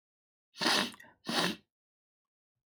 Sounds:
Sniff